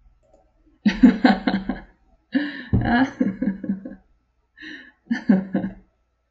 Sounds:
Laughter